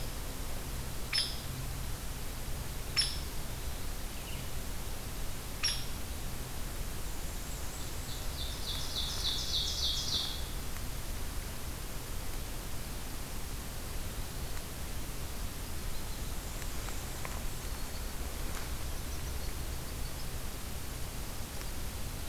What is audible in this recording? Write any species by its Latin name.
Dryobates villosus, Setophaga fusca, Seiurus aurocapilla